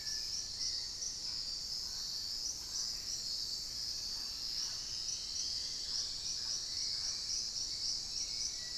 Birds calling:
Hauxwell's Thrush (Turdus hauxwelli)
Dusky-throated Antshrike (Thamnomanes ardesiacus)
Plain-throated Antwren (Isleria hauxwelli)
Dusky-capped Greenlet (Pachysylvia hypoxantha)
Mealy Parrot (Amazona farinosa)

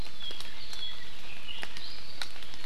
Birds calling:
Apapane (Himatione sanguinea)

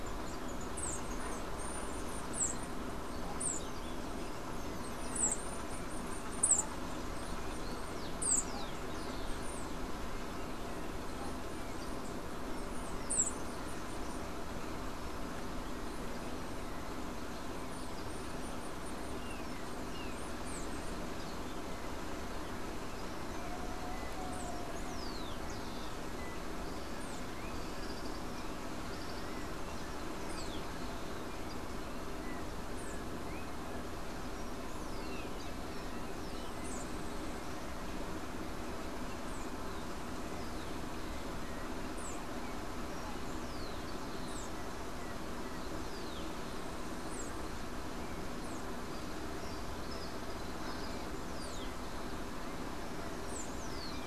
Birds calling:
Tropical Kingbird (Tyrannus melancholicus)
Yellow-backed Oriole (Icterus chrysater)
unidentified bird
Rufous-collared Sparrow (Zonotrichia capensis)
Chestnut-capped Brushfinch (Arremon brunneinucha)

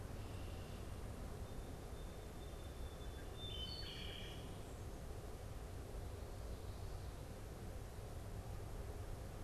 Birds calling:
Song Sparrow (Melospiza melodia)
Wood Thrush (Hylocichla mustelina)
Red-winged Blackbird (Agelaius phoeniceus)

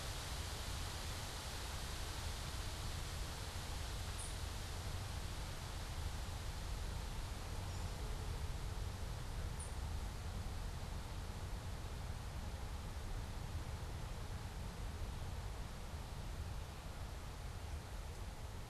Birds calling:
Ovenbird (Seiurus aurocapilla)

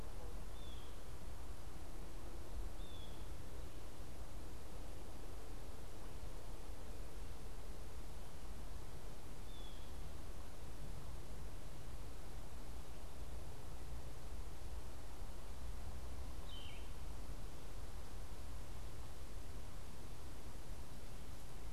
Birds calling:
Yellow-throated Vireo (Vireo flavifrons)
Blue Jay (Cyanocitta cristata)

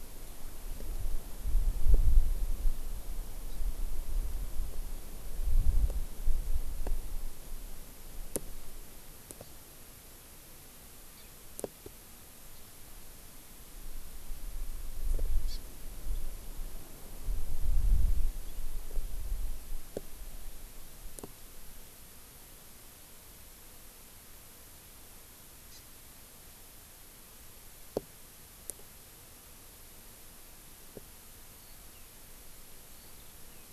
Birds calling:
Hawaii Amakihi (Chlorodrepanis virens)
Eurasian Skylark (Alauda arvensis)

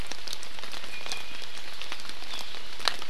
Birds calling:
Iiwi (Drepanis coccinea)

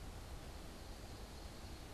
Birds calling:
Ovenbird (Seiurus aurocapilla)

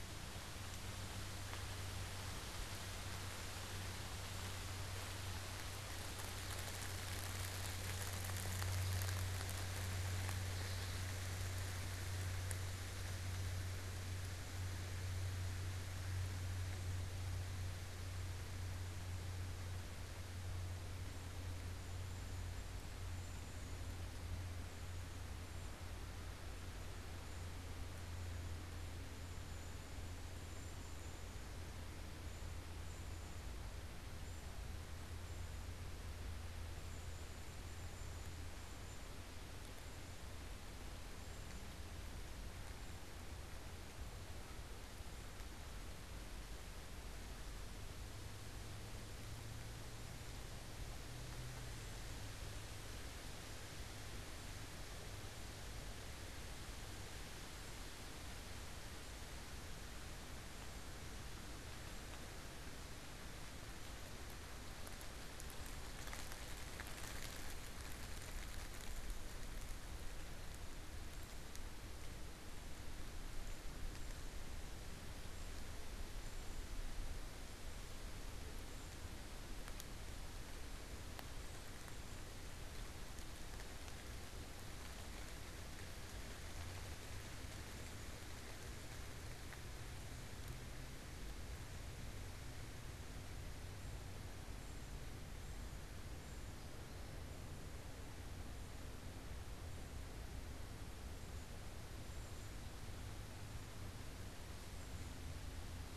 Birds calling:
Cedar Waxwing (Bombycilla cedrorum)

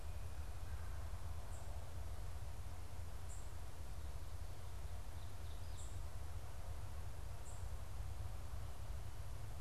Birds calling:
unidentified bird

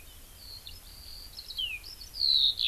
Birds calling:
Eurasian Skylark (Alauda arvensis)

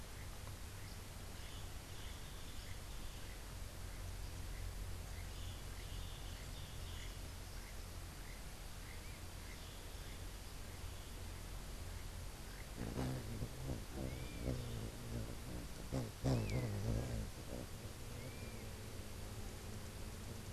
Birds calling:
Long-tailed Manakin (Chiroxiphia linearis)
Crimson-fronted Parakeet (Psittacara finschi)

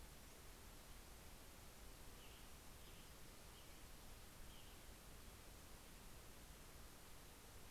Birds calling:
Western Tanager (Piranga ludoviciana)

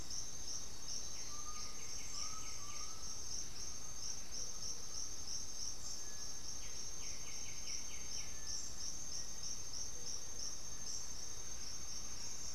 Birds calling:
Cinereous Tinamou (Crypturellus cinereus)
Undulated Tinamou (Crypturellus undulatus)
White-winged Becard (Pachyramphus polychopterus)
Black-faced Antthrush (Formicarius analis)

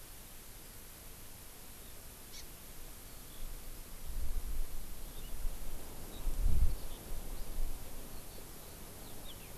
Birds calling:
Eurasian Skylark (Alauda arvensis)
Hawaii Amakihi (Chlorodrepanis virens)

